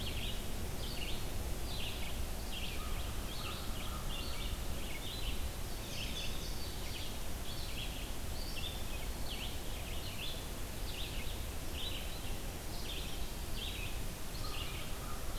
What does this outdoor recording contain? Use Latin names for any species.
Vireo olivaceus, Corvus brachyrhynchos, Passerina cyanea